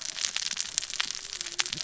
{"label": "biophony, cascading saw", "recorder": "SoundTrap 600 or HydroMoth"}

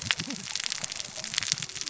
{"label": "biophony, cascading saw", "recorder": "SoundTrap 600 or HydroMoth"}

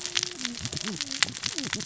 {"label": "biophony, cascading saw", "recorder": "SoundTrap 600 or HydroMoth"}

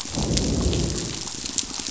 {"label": "biophony, pulse", "recorder": "SoundTrap 500"}
{"label": "biophony, growl", "recorder": "SoundTrap 500"}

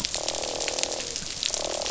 {"label": "biophony, croak", "recorder": "SoundTrap 500"}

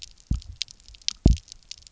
{"label": "biophony, double pulse", "recorder": "SoundTrap 300"}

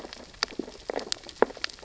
{"label": "biophony, sea urchins (Echinidae)", "recorder": "SoundTrap 600 or HydroMoth"}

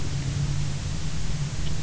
{"label": "anthrophony, boat engine", "recorder": "SoundTrap 300"}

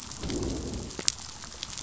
{"label": "biophony, growl", "recorder": "SoundTrap 500"}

